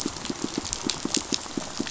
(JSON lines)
{"label": "biophony, pulse", "recorder": "SoundTrap 500"}